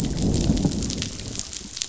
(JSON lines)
{"label": "biophony, growl", "recorder": "SoundTrap 500"}